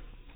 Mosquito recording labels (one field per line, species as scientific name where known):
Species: mosquito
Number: one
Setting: cup